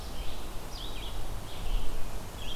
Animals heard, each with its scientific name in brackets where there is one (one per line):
Red-eyed Vireo (Vireo olivaceus)